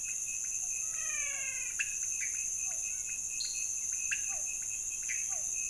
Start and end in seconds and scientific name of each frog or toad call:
0.0	5.6	Leptodactylus podicipinus
0.8	1.9	Physalaemus albonotatus
2.6	5.6	Physalaemus cuvieri
3.4	3.8	Dendropsophus nanus
4.1	5.6	Pithecopus azureus